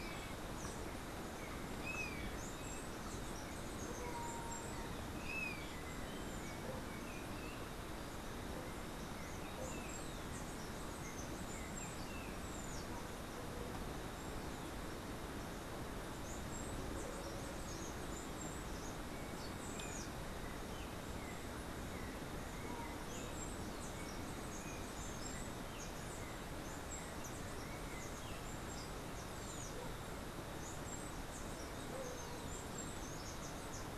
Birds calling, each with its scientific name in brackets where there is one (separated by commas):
Steely-vented Hummingbird (Saucerottia saucerottei), Golden-faced Tyrannulet (Zimmerius chrysops), Yellow-backed Oriole (Icterus chrysater)